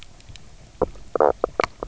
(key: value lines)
label: biophony, knock croak
recorder: SoundTrap 300